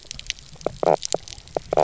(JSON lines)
{"label": "biophony", "recorder": "SoundTrap 300"}